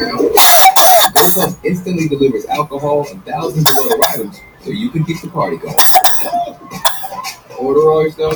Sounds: Cough